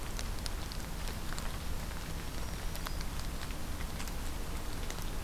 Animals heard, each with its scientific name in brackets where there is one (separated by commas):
Black-throated Green Warbler (Setophaga virens)